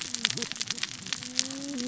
{"label": "biophony, cascading saw", "recorder": "SoundTrap 600 or HydroMoth"}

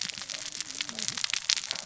{"label": "biophony, cascading saw", "recorder": "SoundTrap 600 or HydroMoth"}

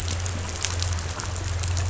{"label": "anthrophony, boat engine", "recorder": "SoundTrap 500"}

